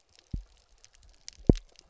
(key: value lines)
label: biophony, double pulse
recorder: SoundTrap 300